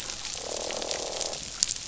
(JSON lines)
{"label": "biophony, croak", "recorder": "SoundTrap 500"}